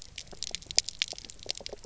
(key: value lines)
label: biophony, pulse
recorder: SoundTrap 300